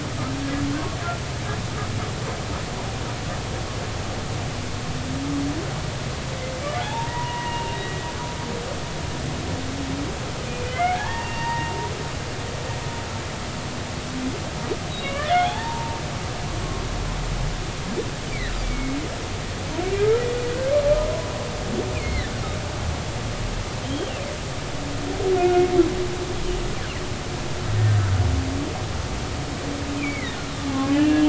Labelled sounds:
6.8	7.8	humpback whale, 0.80 to 2.9 kHz
10.5	11.7	humpback whale, 0.80 to 2.8 kHz
14.9	16.0	humpback whale, 0.80 to 4.0 kHz
18.6	19.0	humpback whale, 2.1 to 2.4 kHz
21.9	22.3	humpback whale, 1.7 to 4.4 kHz
23.8	24.1	humpback whale, 3.1 to 3.3 kHz
25.4	25.6	humpback whale, 1.4 to 1.5 kHz
30.0	31.2	humpback whale, 1.8 to 2.8 kHz

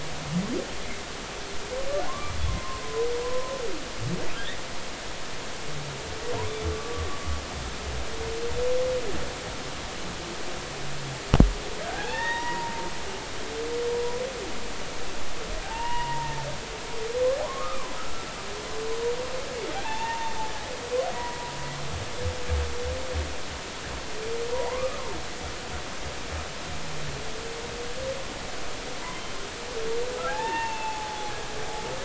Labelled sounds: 2.1	2.8	humpback whale, 0.96 to 1.2 kHz
3.2	3.5	humpback whale, 0.96 to 1.1 kHz
6.7	7.0	humpback whale, 1.1 to 1.2 kHz
11.9	12.9	humpback whale, 0.80 to 3.8 kHz
15.6	16.4	humpback whale, 0.80 to 2.9 kHz
17.4	18.3	humpback whale, 0.96 to 1.5 kHz
19.8	20.3	humpback whale, 0.80 to 3.7 kHz
21.2	21.5	humpback whale, 0.93 to 1.0 kHz
24.5	25.0	humpback whale, 0.80 to 1.3 kHz
30.3	31.3	humpback whale, 0.80 to 2.8 kHz

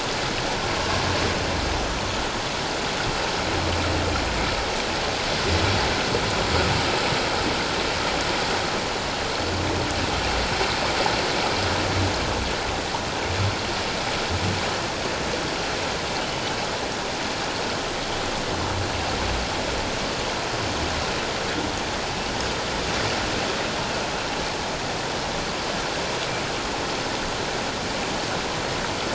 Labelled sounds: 16.2	16.6	humpback whale, 2.8 to 3.1 kHz

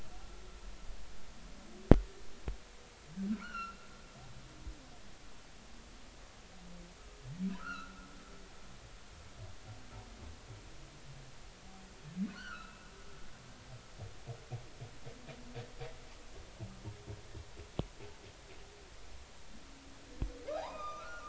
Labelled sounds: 3.3	3.8	humpback whale, 1.2 to 4.4 kHz
7.6	8.0	humpback whale, 1.2 to 1.6 kHz
12.3	12.9	humpback whale, 1.2 to 3.1 kHz
20.5	21.2	humpback whale, 0.80 to 5.2 kHz

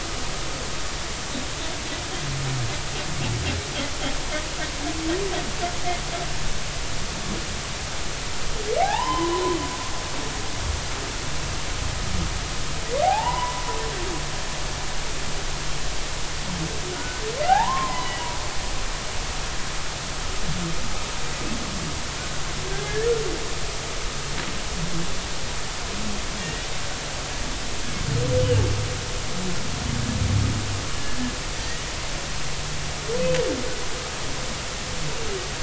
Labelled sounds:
8.8	9.4	humpback whale, 0.80 to 3.1 kHz
13.0	13.6	humpback whale, 0.80 to 2.0 kHz
17.4	18.2	humpback whale, 0.80 to 1.9 kHz
18.9	19.3	humpback whale, 2.8 to 3.0 kHz
26.4	26.6	humpback whale, 1.8 to 2.0 kHz
31.6	31.8	humpback whale, 1.8 to 2.0 kHz

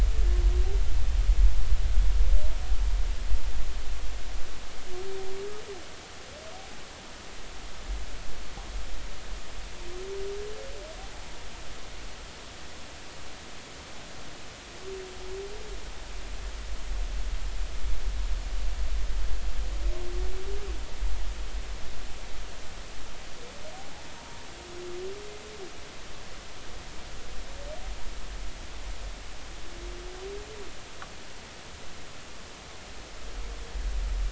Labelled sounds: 24.2	24.4	humpback whale, 0.90 to 0.99 kHz

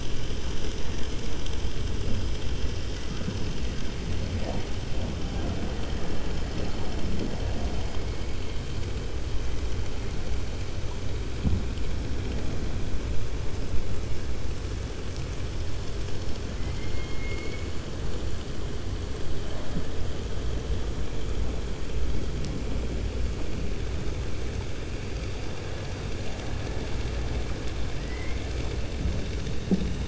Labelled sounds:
16.5	17.7	killer whale, 1.2 to 3.1 kHz

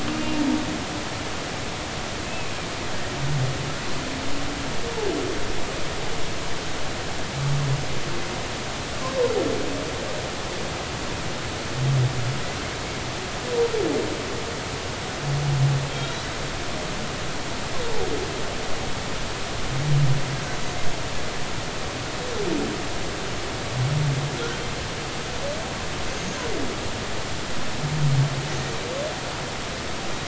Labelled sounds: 26.1	26.4	humpback whale, 6.2 to 6.6 kHz

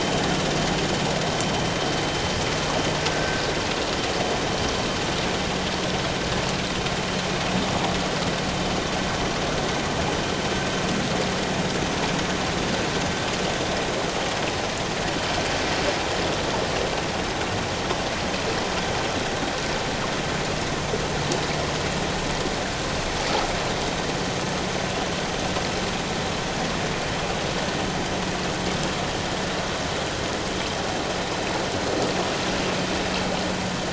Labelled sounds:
3.1	3.4	vessel noise, 1.4 to 1.6 kHz

